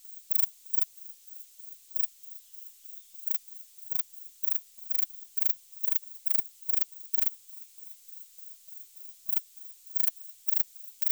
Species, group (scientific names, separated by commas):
Platycleis albopunctata, Orthoptera